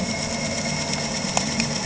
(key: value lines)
label: anthrophony, boat engine
recorder: HydroMoth